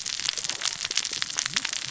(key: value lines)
label: biophony, cascading saw
recorder: SoundTrap 600 or HydroMoth